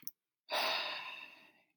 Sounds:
Sigh